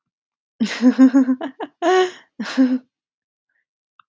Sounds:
Laughter